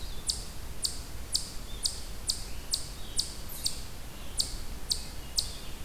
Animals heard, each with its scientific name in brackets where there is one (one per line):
Hermit Thrush (Catharus guttatus)
Eastern Chipmunk (Tamias striatus)